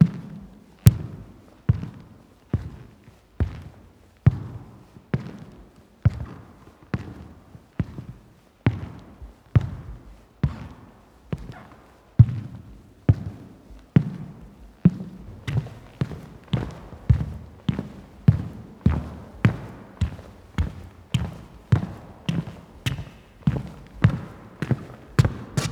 What is the person doing?
walking